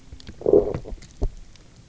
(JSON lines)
{"label": "biophony, low growl", "recorder": "SoundTrap 300"}